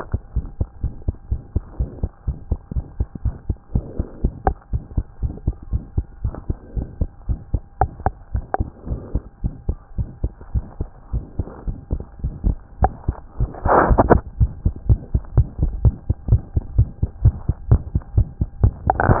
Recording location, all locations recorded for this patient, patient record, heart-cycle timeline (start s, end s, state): tricuspid valve (TV)
aortic valve (AV)+pulmonary valve (PV)+tricuspid valve (TV)+mitral valve (MV)
#Age: Child
#Sex: Female
#Height: 95.0 cm
#Weight: 13.1 kg
#Pregnancy status: False
#Murmur: Present
#Murmur locations: aortic valve (AV)+mitral valve (MV)+pulmonary valve (PV)+tricuspid valve (TV)
#Most audible location: tricuspid valve (TV)
#Systolic murmur timing: Early-systolic
#Systolic murmur shape: Plateau
#Systolic murmur grading: II/VI
#Systolic murmur pitch: Low
#Systolic murmur quality: Blowing
#Diastolic murmur timing: nan
#Diastolic murmur shape: nan
#Diastolic murmur grading: nan
#Diastolic murmur pitch: nan
#Diastolic murmur quality: nan
#Outcome: Abnormal
#Campaign: 2015 screening campaign
0.00	0.20	unannotated
0.20	0.36	diastole
0.36	0.48	S1
0.48	0.58	systole
0.58	0.68	S2
0.68	0.82	diastole
0.82	0.94	S1
0.94	1.04	systole
1.04	1.14	S2
1.14	1.28	diastole
1.28	1.42	S1
1.42	1.52	systole
1.52	1.62	S2
1.62	1.76	diastole
1.76	1.88	S1
1.88	2.00	systole
2.00	2.10	S2
2.10	2.26	diastole
2.26	2.38	S1
2.38	2.48	systole
2.48	2.58	S2
2.58	2.72	diastole
2.72	2.84	S1
2.84	2.96	systole
2.96	3.08	S2
3.08	3.24	diastole
3.24	3.36	S1
3.36	3.46	systole
3.46	3.56	S2
3.56	3.72	diastole
3.72	3.84	S1
3.84	3.96	systole
3.96	4.06	S2
4.06	4.22	diastole
4.22	4.32	S1
4.32	4.44	systole
4.44	4.54	S2
4.54	4.72	diastole
4.72	4.82	S1
4.82	4.94	systole
4.94	5.04	S2
5.04	5.22	diastole
5.22	5.34	S1
5.34	5.44	systole
5.44	5.56	S2
5.56	5.70	diastole
5.70	5.82	S1
5.82	5.94	systole
5.94	6.06	S2
6.06	6.22	diastole
6.22	6.34	S1
6.34	6.46	systole
6.46	6.56	S2
6.56	6.74	diastole
6.74	6.88	S1
6.88	6.98	systole
6.98	7.08	S2
7.08	7.26	diastole
7.26	7.40	S1
7.40	7.52	systole
7.52	7.62	S2
7.62	7.80	diastole
7.80	7.94	S1
7.94	8.04	systole
8.04	8.14	S2
8.14	8.32	diastole
8.32	8.46	S1
8.46	8.58	systole
8.58	8.70	S2
8.70	8.88	diastole
8.88	8.98	S1
8.98	9.12	systole
9.12	9.22	S2
9.22	9.42	diastole
9.42	9.52	S1
9.52	9.66	systole
9.66	9.76	S2
9.76	9.96	diastole
9.96	10.08	S1
10.08	10.22	systole
10.22	10.32	S2
10.32	10.52	diastole
10.52	10.64	S1
10.64	10.78	systole
10.78	10.90	S2
10.90	11.10	diastole
11.10	11.24	S1
11.24	11.36	systole
11.36	11.46	S2
11.46	11.64	diastole
11.64	11.76	S1
11.76	11.90	systole
11.90	12.02	S2
12.02	12.15	diastole
12.15	19.20	unannotated